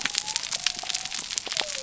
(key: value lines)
label: biophony
recorder: SoundTrap 300